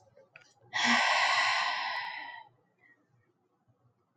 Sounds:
Sigh